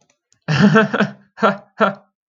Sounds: Laughter